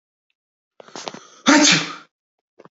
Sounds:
Sneeze